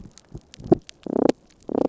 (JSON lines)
{"label": "biophony, damselfish", "recorder": "SoundTrap 300"}